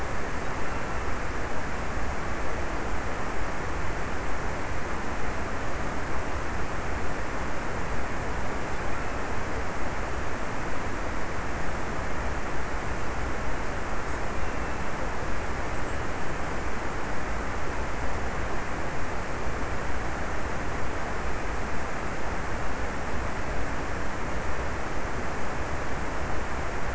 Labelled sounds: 0.0	1.9	killer whale, offshore, 2.2 to 2.9 kHz

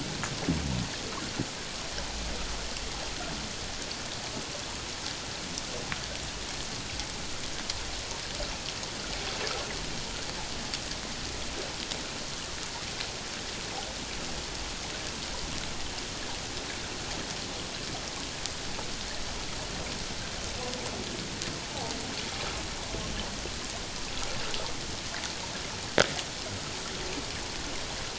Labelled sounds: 21.6	21.9	humpback whale, 0.78 to 1.0 kHz

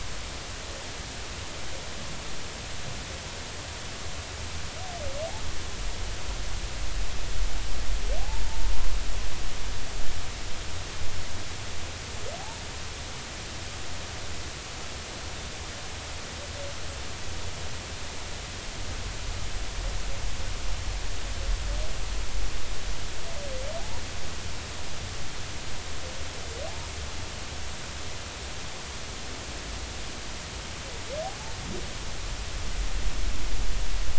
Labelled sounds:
8.4	8.7	humpback whale, 0.83 to 0.96 kHz

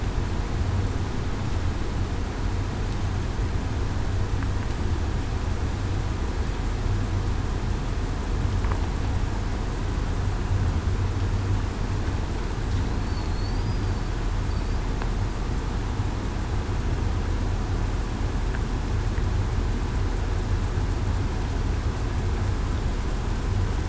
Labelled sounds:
13.0	13.5	killer whale, southern resident, 4.2 to 4.6 kHz

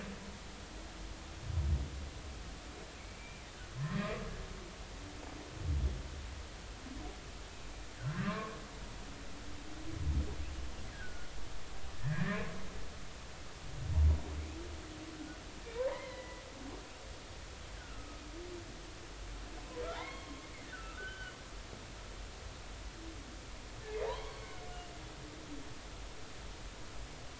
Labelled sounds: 3.0	4.1	humpback whale, 1.7 to 2.4 kHz
8.0	8.6	humpback whale, 0.99 to 1.7 kHz
10.9	11.3	humpback whale, 1.4 to 1.7 kHz
12.0	12.4	humpback whale, 1.6 to 2.0 kHz
15.8	16.4	humpback whale, 0.83 to 2.2 kHz
17.8	18.2	humpback whale, 1.2 to 1.7 kHz
19.9	21.4	humpback whale, 0.80 to 3.3 kHz
24.0	24.5	humpback whale, 0.80 to 4.5 kHz

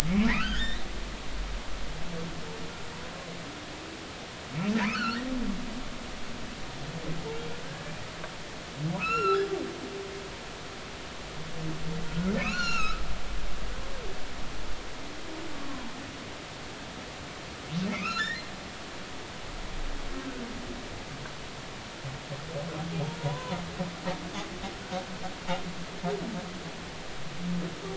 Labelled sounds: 0.3	0.9	humpback whale, 1.2 to 4.2 kHz
4.8	5.3	humpback whale, 1.2 to 3.1 kHz
7.6	7.9	humpback whale, 1.5 to 1.8 kHz
9.0	9.5	humpback whale, 1.2 to 5.6 kHz
12.1	13.0	humpback whale, 1.2 to 5.9 kHz
17.9	18.5	humpback whale, 1.2 to 7.3 kHz
23.2	23.6	humpback whale, 0.90 to 1.1 kHz

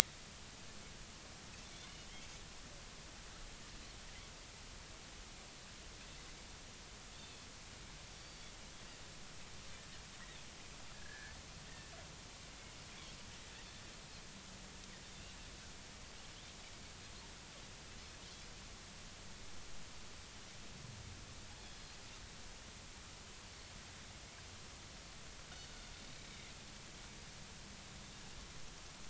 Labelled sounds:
8.2	8.5	Pacific white-sided dolphin, 4.5 to 4.7 kHz
10.9	11.4	Pacific white-sided dolphin, 1.5 to 1.8 kHz
21.5	21.8	Pacific white-sided dolphin, 3.3 to 3.5 kHz

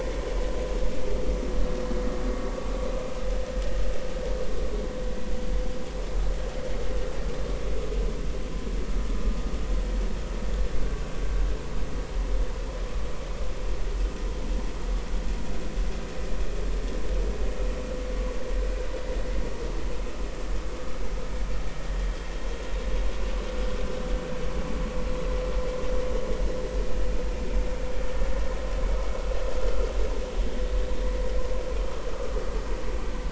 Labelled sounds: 32.1	32.4	vessel noise, 1.15 to 1.25 kHz

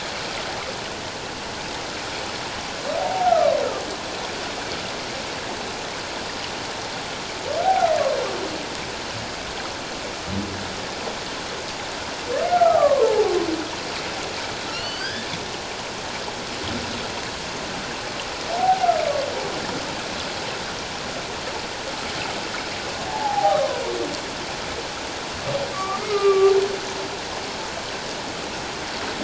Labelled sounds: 3.0	3.5	humpback whale, 0.78 to 1.5 kHz
7.6	7.9	humpback whale, 0.78 to 0.84 kHz
12.5	13.3	humpback whale, 0.78 to 1.5 kHz
14.7	15.3	humpback whale, 1.5 to 5.3 kHz
18.6	18.9	humpback whale, 0.78 to 0.88 kHz
23.1	23.8	humpback whale, 0.78 to 1.3 kHz
25.7	26.5	humpback whale, 1.1 to 2.4 kHz

